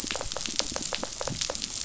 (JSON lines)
{"label": "biophony", "recorder": "SoundTrap 500"}